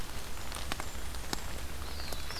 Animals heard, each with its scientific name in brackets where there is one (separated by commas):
Blackburnian Warbler (Setophaga fusca), Black-throated Blue Warbler (Setophaga caerulescens)